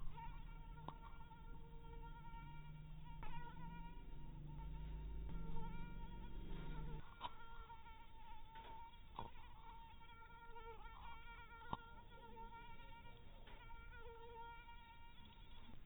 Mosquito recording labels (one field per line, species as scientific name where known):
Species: mosquito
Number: one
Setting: cup